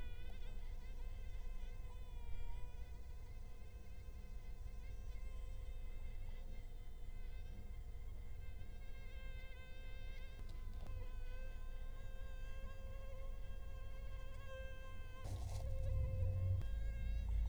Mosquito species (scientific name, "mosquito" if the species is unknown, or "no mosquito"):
Culex quinquefasciatus